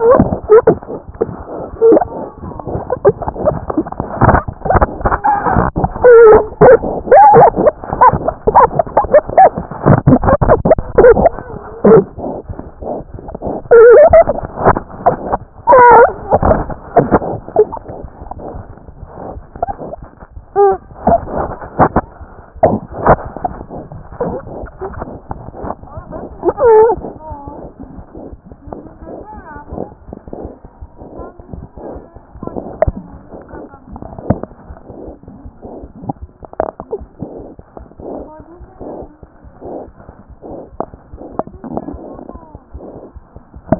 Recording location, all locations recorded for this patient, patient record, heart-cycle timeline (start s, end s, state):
aortic valve (AV)
aortic valve (AV)+mitral valve (MV)
#Age: Infant
#Sex: Male
#Height: 60.0 cm
#Weight: 6.5 kg
#Pregnancy status: False
#Murmur: Unknown
#Murmur locations: nan
#Most audible location: nan
#Systolic murmur timing: nan
#Systolic murmur shape: nan
#Systolic murmur grading: nan
#Systolic murmur pitch: nan
#Systolic murmur quality: nan
#Diastolic murmur timing: nan
#Diastolic murmur shape: nan
#Diastolic murmur grading: nan
#Diastolic murmur pitch: nan
#Diastolic murmur quality: nan
#Outcome: Abnormal
#Campaign: 2014 screening campaign
0.00	30.25	unannotated
30.25	30.42	diastole
30.42	30.48	S1
30.48	30.64	systole
30.64	30.70	S2
30.70	30.81	diastole
30.81	30.88	S1
30.88	31.00	systole
31.00	31.07	S2
31.07	31.18	diastole
31.18	31.29	S1
31.29	31.39	systole
31.39	31.44	S2
31.44	31.56	diastole
31.56	31.66	S1
31.66	31.76	systole
31.76	31.82	S2
31.82	31.94	diastole
31.94	32.00	S1
32.00	32.15	systole
32.15	32.19	S2
32.19	32.35	diastole
32.35	43.79	unannotated